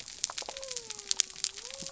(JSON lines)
{"label": "biophony", "recorder": "SoundTrap 300"}